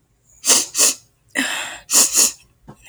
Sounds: Sniff